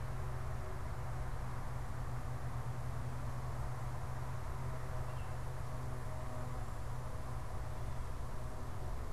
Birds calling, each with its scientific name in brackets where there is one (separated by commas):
Baltimore Oriole (Icterus galbula)